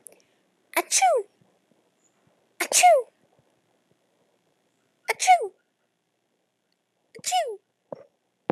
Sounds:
Sneeze